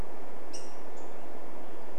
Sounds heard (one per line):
Black-headed Grosbeak call